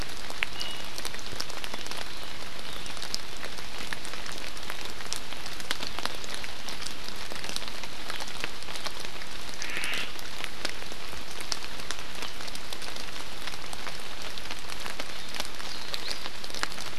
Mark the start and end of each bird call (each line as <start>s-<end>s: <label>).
0.5s-0.9s: Iiwi (Drepanis coccinea)
9.6s-10.1s: Omao (Myadestes obscurus)